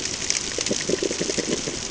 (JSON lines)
{"label": "ambient", "recorder": "HydroMoth"}